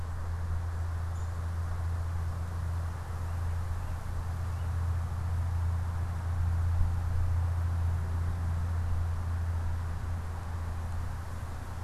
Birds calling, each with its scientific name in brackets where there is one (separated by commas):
Downy Woodpecker (Dryobates pubescens)